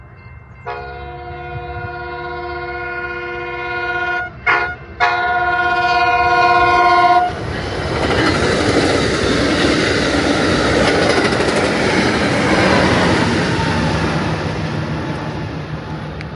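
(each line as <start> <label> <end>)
0.0 Bells ringing at a train crossing gate. 0.7
0.7 A train horn sounds and gets closer. 4.3
4.4 A train horn sounds. 7.3
7.3 A train passes by. 16.2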